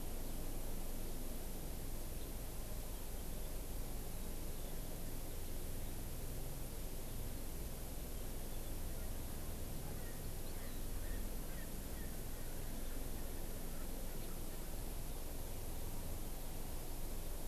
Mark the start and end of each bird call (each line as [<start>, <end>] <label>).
[9.87, 13.87] Erckel's Francolin (Pternistis erckelii)